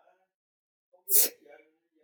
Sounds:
Sneeze